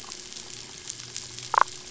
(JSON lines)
{"label": "biophony, damselfish", "recorder": "SoundTrap 500"}